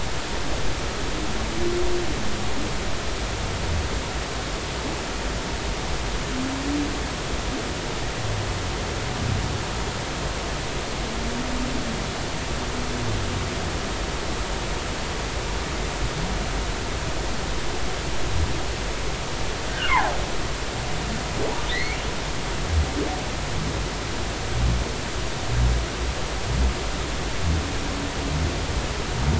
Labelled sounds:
19.7	20.2	humpback whale, 0.80 to 1.7 kHz
21.7	22.0	humpback whale, 1.7 to 4.5 kHz

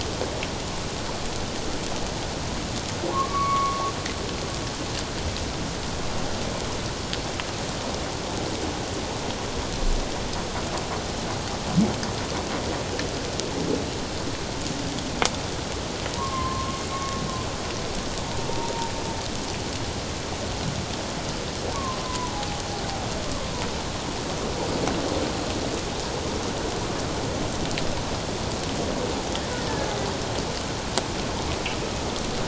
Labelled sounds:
3.1	3.9	humpback whale, 0.94 to 2.3 kHz
16.2	16.8	humpback whale, 0.91 to 1.2 kHz
18.5	18.9	humpback whale, 0.88 to 1.0 kHz
21.7	22.3	humpback whale, 0.94 to 1.2 kHz

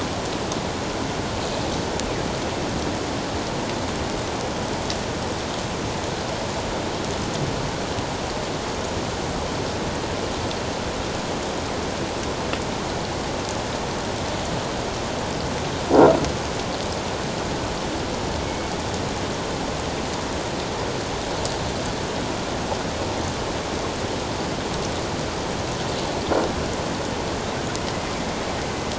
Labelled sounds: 18.4	18.7	killer whale, northern resident, 2.16 to 2.25 kHz

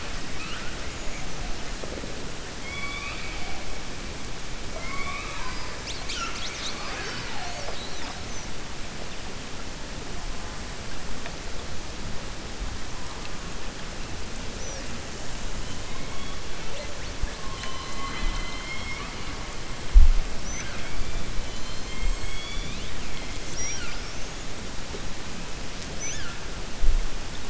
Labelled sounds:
2.5	3.3	killer whale, 2.1 to 4.5 kHz
4.7	5.7	killer whale, 0.63 to 3.5 kHz
17.5	19.3	killer whale, 0.63 to 5.4 kHz
21.4	23.0	killer whale, 2.2 to 4.7 kHz

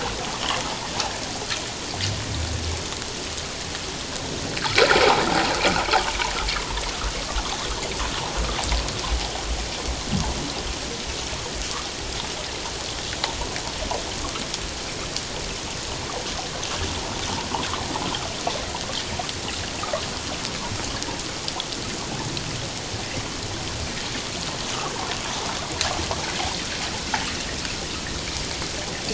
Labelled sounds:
4.6	5.2	humpback whale, 0.78 to 1.7 kHz
6.6	6.8	humpback whale, 0.91 to 1.2 kHz

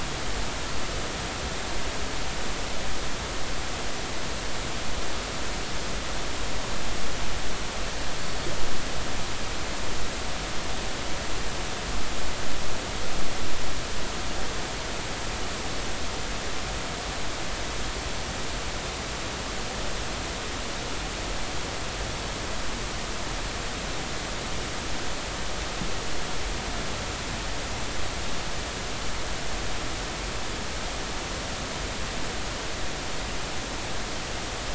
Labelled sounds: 8.2	8.5	Pacific white-sided dolphin, 4.3 to 4.5 kHz

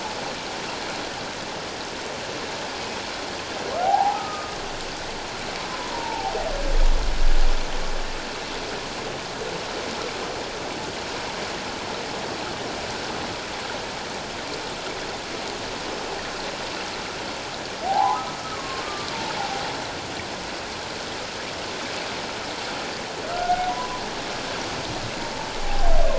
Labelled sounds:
3.8	4.6	humpback whale, 0.78 to 1.3 kHz
5.8	6.4	humpback whale, 0.78 to 1.1 kHz
17.8	18.2	humpback whale, 0.78 to 1.1 kHz
18.6	19.1	humpback whale, 1.0 to 1.2 kHz
23.3	24.0	humpback whale, 0.94 to 1.5 kHz
25.6	25.9	humpback whale, 0.78 to 0.88 kHz

